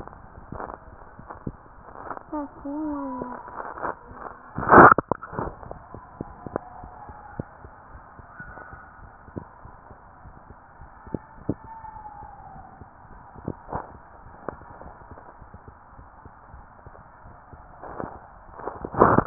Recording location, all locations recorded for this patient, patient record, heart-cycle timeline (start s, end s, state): mitral valve (MV)
aortic valve (AV)+pulmonary valve (PV)+tricuspid valve (TV)+mitral valve (MV)
#Age: Child
#Sex: Female
#Height: 135.0 cm
#Weight: 40.5 kg
#Pregnancy status: False
#Murmur: Absent
#Murmur locations: nan
#Most audible location: nan
#Systolic murmur timing: nan
#Systolic murmur shape: nan
#Systolic murmur grading: nan
#Systolic murmur pitch: nan
#Systolic murmur quality: nan
#Diastolic murmur timing: nan
#Diastolic murmur shape: nan
#Diastolic murmur grading: nan
#Diastolic murmur pitch: nan
#Diastolic murmur quality: nan
#Outcome: Normal
#Campaign: 2015 screening campaign
0.00	7.72	unannotated
7.72	7.94	diastole
7.94	8.04	S1
8.04	8.16	systole
8.16	8.28	S2
8.28	8.46	diastole
8.46	8.58	S1
8.58	8.70	systole
8.70	8.82	S2
8.82	9.00	diastole
9.00	9.10	S1
9.10	9.32	systole
9.32	9.46	S2
9.46	9.60	diastole
9.60	9.70	S1
9.70	9.87	systole
9.87	9.98	S2
9.98	10.23	diastole
10.23	10.36	S1
10.36	10.48	systole
10.48	10.58	S2
10.58	10.80	diastole
10.80	10.92	S1
10.92	11.08	systole
11.08	11.24	S2
11.24	11.46	diastole
11.46	11.92	unannotated
11.92	12.06	S1
12.06	12.20	systole
12.20	12.32	S2
12.32	12.54	diastole
12.54	12.66	S1
12.66	12.80	systole
12.80	12.90	S2
12.90	13.12	diastole
13.12	13.24	S1
13.24	13.38	systole
13.38	13.54	S2
13.54	13.74	diastole
13.74	13.84	S1
13.84	13.92	systole
13.92	14.02	S2
14.02	14.24	diastole
14.24	14.34	S1
14.34	14.44	systole
14.44	14.60	S2
14.60	14.84	diastole
14.84	14.96	S1
14.96	15.10	systole
15.10	15.20	S2
15.20	15.42	diastole
15.42	15.52	S1
15.52	15.64	systole
15.64	15.76	S2
15.76	15.94	diastole
15.94	19.26	unannotated